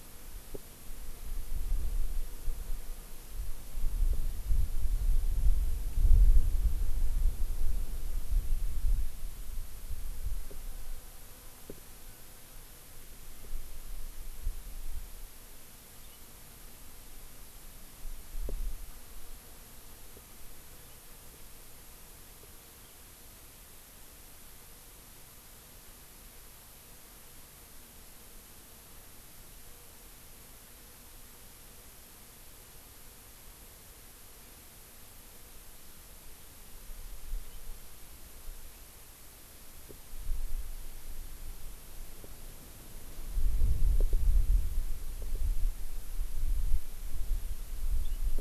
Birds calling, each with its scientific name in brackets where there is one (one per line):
House Finch (Haemorhous mexicanus)